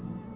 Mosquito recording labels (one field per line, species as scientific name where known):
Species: Aedes albopictus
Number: one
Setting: insect culture